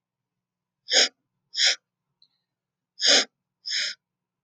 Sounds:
Sniff